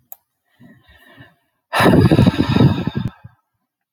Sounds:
Sigh